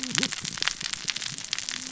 {"label": "biophony, cascading saw", "recorder": "SoundTrap 600 or HydroMoth"}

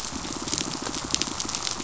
{"label": "biophony, pulse", "recorder": "SoundTrap 500"}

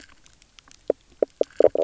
{"label": "biophony, knock croak", "recorder": "SoundTrap 300"}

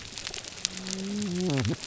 {"label": "biophony, whup", "recorder": "SoundTrap 300"}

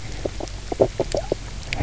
{"label": "biophony, knock croak", "recorder": "SoundTrap 300"}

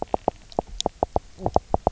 {"label": "biophony, knock croak", "recorder": "SoundTrap 300"}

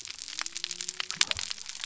{"label": "biophony", "recorder": "SoundTrap 300"}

